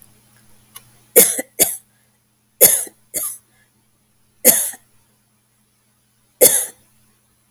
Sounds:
Cough